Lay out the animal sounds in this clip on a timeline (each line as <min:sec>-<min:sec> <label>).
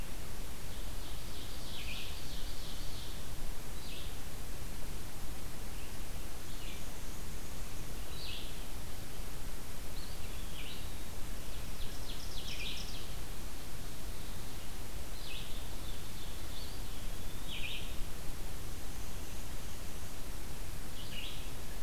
0:00.0-0:12.8 Red-eyed Vireo (Vireo olivaceus)
0:00.5-0:03.1 Ovenbird (Seiurus aurocapilla)
0:06.2-0:08.0 Black-and-white Warbler (Mniotilta varia)
0:09.8-0:11.1 Eastern Wood-Pewee (Contopus virens)
0:11.4-0:13.2 Ovenbird (Seiurus aurocapilla)
0:15.0-0:21.8 Red-eyed Vireo (Vireo olivaceus)
0:16.3-0:17.8 Eastern Wood-Pewee (Contopus virens)
0:18.5-0:20.2 Black-and-white Warbler (Mniotilta varia)